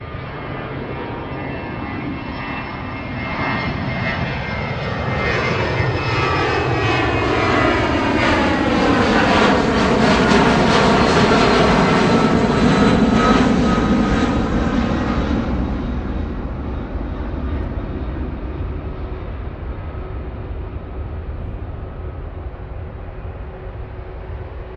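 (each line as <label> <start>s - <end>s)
An airplane taxiing on the runway before takeoff. 0.0s - 4.6s
An airplane is flying overhead. 4.6s - 16.7s
An airplane flying in the distance. 16.7s - 24.8s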